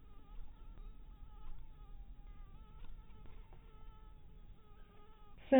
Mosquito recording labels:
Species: mosquito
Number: one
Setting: cup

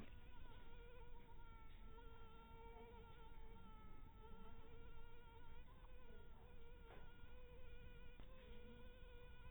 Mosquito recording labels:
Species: mosquito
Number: one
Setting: cup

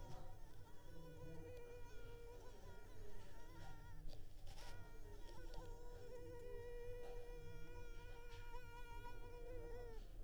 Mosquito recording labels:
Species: Culex pipiens complex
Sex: female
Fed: unfed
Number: one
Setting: cup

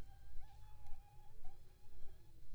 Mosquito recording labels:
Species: Aedes aegypti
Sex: female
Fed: unfed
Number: one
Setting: cup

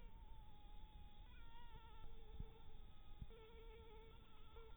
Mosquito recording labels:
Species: Anopheles harrisoni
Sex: female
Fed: blood-fed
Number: one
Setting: cup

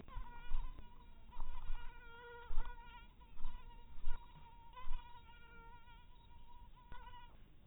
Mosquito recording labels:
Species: mosquito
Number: one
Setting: cup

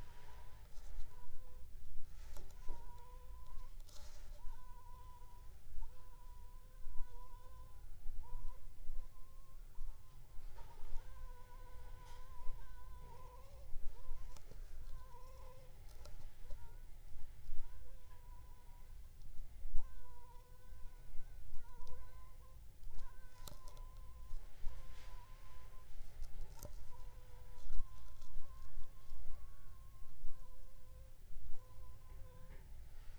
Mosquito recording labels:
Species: Anopheles funestus s.s.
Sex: female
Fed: unfed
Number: one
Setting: cup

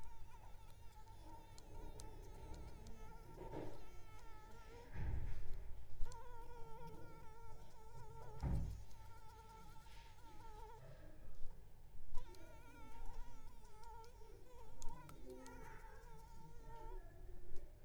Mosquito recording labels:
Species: Anopheles arabiensis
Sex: female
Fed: unfed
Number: one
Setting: cup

